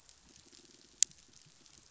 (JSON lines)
{"label": "biophony, pulse", "recorder": "SoundTrap 500"}